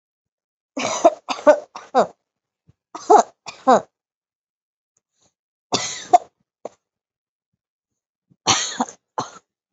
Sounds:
Cough